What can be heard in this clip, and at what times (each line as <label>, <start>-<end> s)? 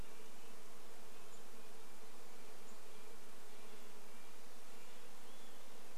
unidentified bird chip note, 0-4 s
Red-breasted Nuthatch song, 0-6 s
insect buzz, 0-6 s
Olive-sided Flycatcher song, 4-6 s